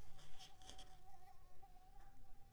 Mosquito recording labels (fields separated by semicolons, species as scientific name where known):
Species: Anopheles coustani; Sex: female; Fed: unfed; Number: one; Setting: cup